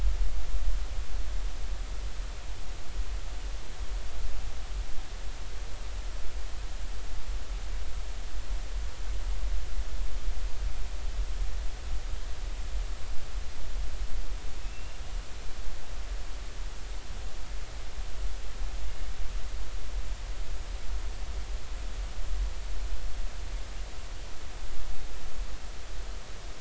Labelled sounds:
14.6	15.0	killer whale, northern resident, A clan, AA subclan, 2.5 to 2.8 kHz

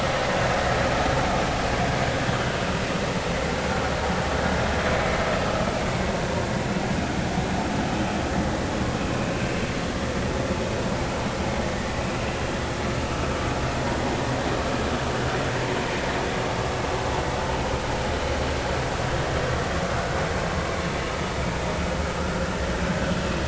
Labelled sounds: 4.9	5.2	vessel noise, 2.2 to 2.3 kHz

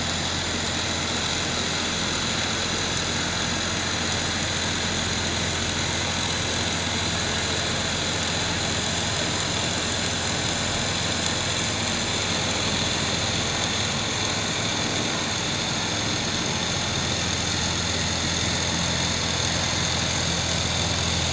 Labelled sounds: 15.9	16.1	vessel noise, 7.5 to 7.7 kHz

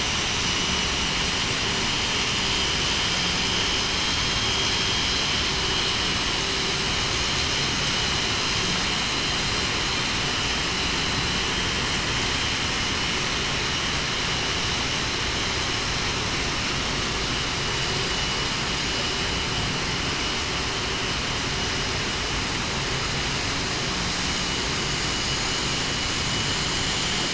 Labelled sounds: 4.4	4.7	vessel noise, 3.2 to 3.3 kHz

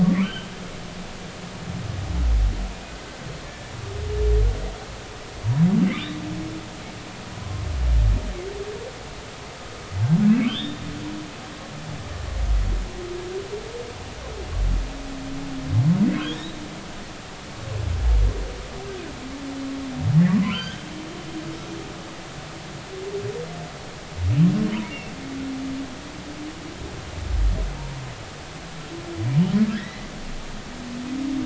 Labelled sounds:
0.0	0.5	humpback whale, 0.96 to 3.3 kHz
3.5	3.7	humpback whale, 1.7 to 1.8 kHz
5.8	6.2	humpback whale, 1.9 to 3.9 kHz
7.4	7.6	humpback whale, 0.96 to 1.1 kHz
10.3	10.8	humpback whale, 1.3 to 3.7 kHz
16.2	16.5	humpback whale, 2.9 to 4.0 kHz
20.3	20.8	humpback whale, 0.96 to 3.3 kHz
24.8	25.1	humpback whale, 2.0 to 2.4 kHz
29.7	30.1	humpback whale, 1.5 to 2.1 kHz

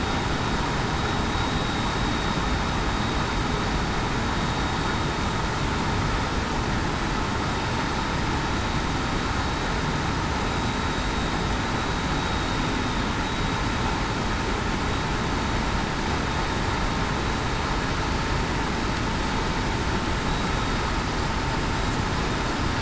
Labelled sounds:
10.4	10.9	vessel noise, 3.8 to 3.9 kHz

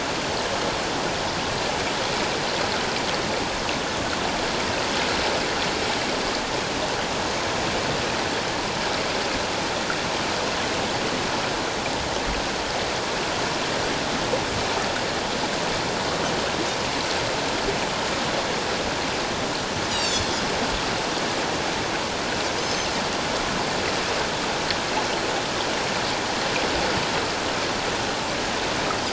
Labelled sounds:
19.9	20.2	Pacific white-sided dolphin, 3.3 to 7.9 kHz
22.6	22.9	Pacific white-sided dolphin, 5.1 to 6.3 kHz

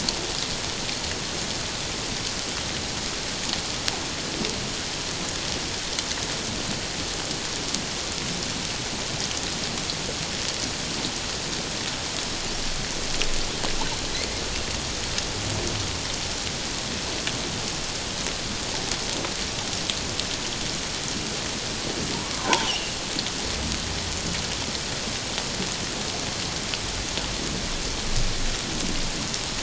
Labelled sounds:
22.1	23.0	humpback whale, 0.78 to 3.1 kHz

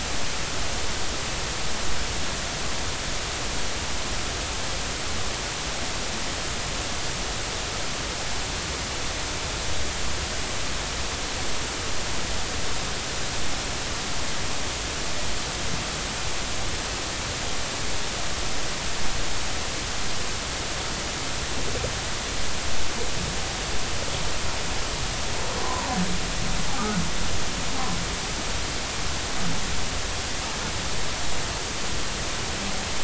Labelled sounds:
25.6	25.9	humpback whale, 0.86 to 1.2 kHz
26.7	27.0	humpback whale, 1.2 to 1.4 kHz

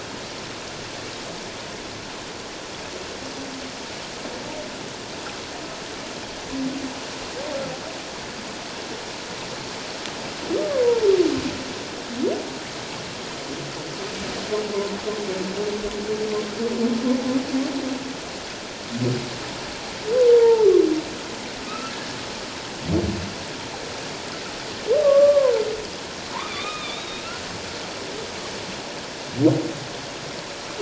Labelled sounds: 20.3	20.7	humpback whale, 0.81 to 0.97 kHz
21.7	21.9	humpback whale, 1.2 to 2.7 kHz
25.0	25.5	humpback whale, 0.94 to 1.2 kHz
26.3	27.3	humpback whale, 0.88 to 3.9 kHz

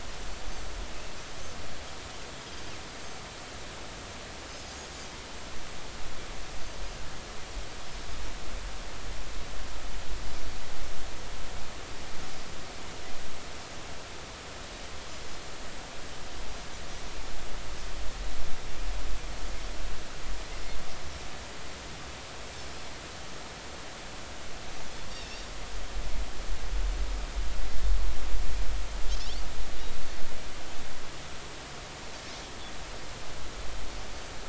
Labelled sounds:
25.1	25.5	Pacific white-sided dolphin, 2.6 to 5.7 kHz

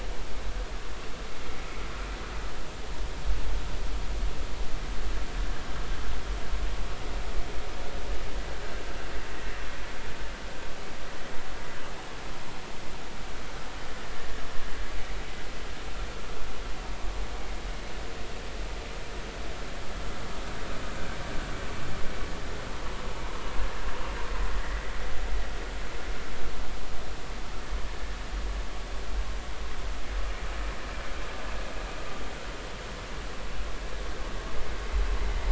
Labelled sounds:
9.3	9.6	vessel noise, 1.8 to 2.0 kHz
23.1	23.4	vessel noise, 0.83 to 1.1 kHz

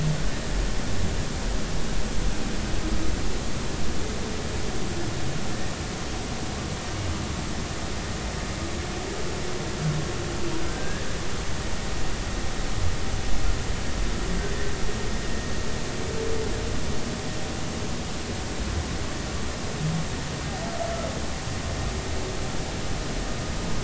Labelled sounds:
10.7	11.1	humpback whale, 1.5 to 1.8 kHz

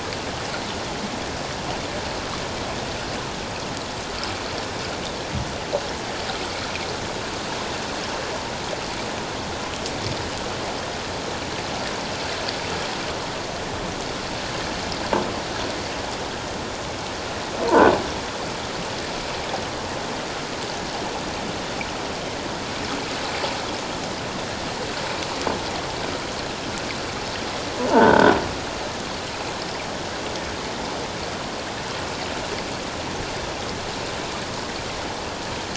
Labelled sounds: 27.9	28.3	croaking sound likely from a nearby submerged object, 1.4 to 3.7 kHz

